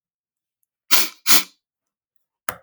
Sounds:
Sniff